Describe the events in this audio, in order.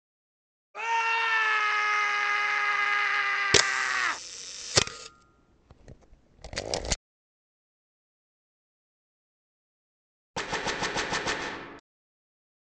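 At 0.74 seconds, someone screams. Over it, at 3.52 seconds, a camera can be heard. Finally, at 10.34 seconds, there is gunfire.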